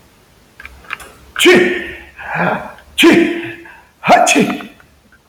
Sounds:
Sneeze